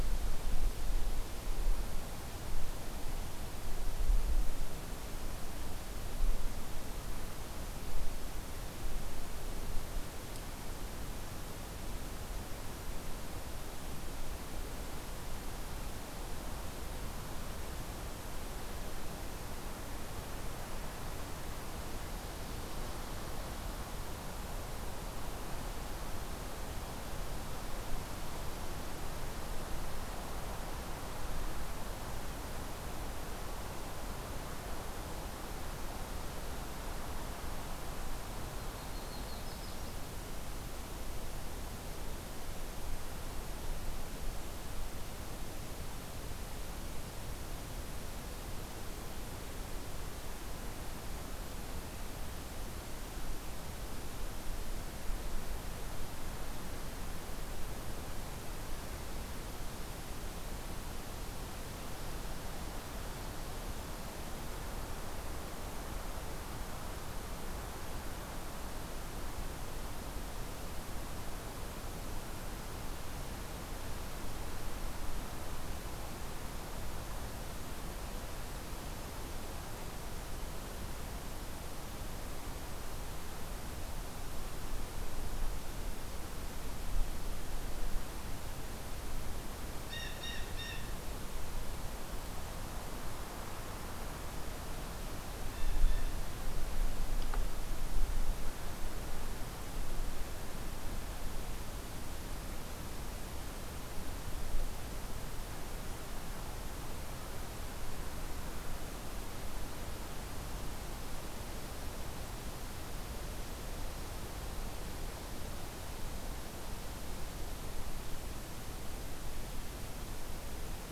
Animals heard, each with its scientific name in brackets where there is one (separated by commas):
Yellow-rumped Warbler (Setophaga coronata), Blue Jay (Cyanocitta cristata)